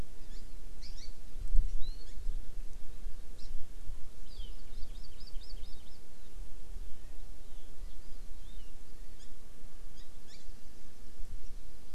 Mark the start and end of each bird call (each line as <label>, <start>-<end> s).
Hawaii Amakihi (Chlorodrepanis virens), 0.1-1.1 s
Hawaii Amakihi (Chlorodrepanis virens), 1.7-2.2 s
Hawaii Amakihi (Chlorodrepanis virens), 3.3-3.5 s
Hawaii Amakihi (Chlorodrepanis virens), 4.2-5.9 s
Warbling White-eye (Zosterops japonicus), 8.3-8.7 s
Hawaii Amakihi (Chlorodrepanis virens), 9.1-9.2 s
Hawaii Amakihi (Chlorodrepanis virens), 9.9-10.3 s